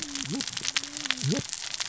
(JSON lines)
{"label": "biophony, cascading saw", "recorder": "SoundTrap 600 or HydroMoth"}